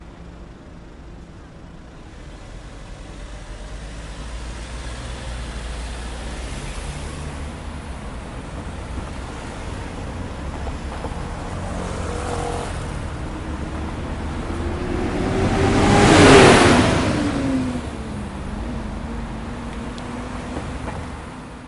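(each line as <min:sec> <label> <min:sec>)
0:00.0 A motorcycle engine rumbles from the distance, growing louder as it approaches and fading as it passes by. 0:21.7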